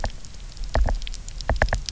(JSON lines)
{"label": "biophony, knock", "recorder": "SoundTrap 300"}